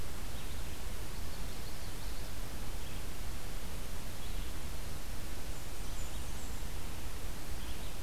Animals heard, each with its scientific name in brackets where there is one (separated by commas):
Blackburnian Warbler (Setophaga fusca), Common Yellowthroat (Geothlypis trichas)